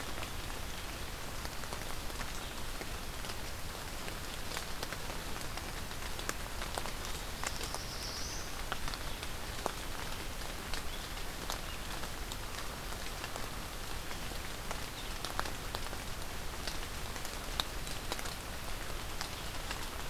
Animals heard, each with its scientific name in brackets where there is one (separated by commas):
Black-throated Blue Warbler (Setophaga caerulescens)